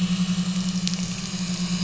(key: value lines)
label: anthrophony, boat engine
recorder: SoundTrap 500